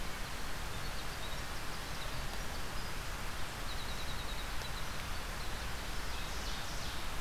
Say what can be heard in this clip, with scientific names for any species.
Troglodytes hiemalis, Seiurus aurocapilla